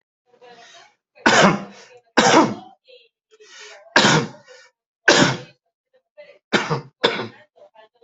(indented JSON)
{
  "expert_labels": [
    {
      "quality": "ok",
      "cough_type": "unknown",
      "dyspnea": false,
      "wheezing": false,
      "stridor": false,
      "choking": false,
      "congestion": false,
      "nothing": true,
      "diagnosis": "healthy cough",
      "severity": "pseudocough/healthy cough"
    }
  ],
  "age": 50,
  "gender": "male",
  "respiratory_condition": false,
  "fever_muscle_pain": false,
  "status": "healthy"
}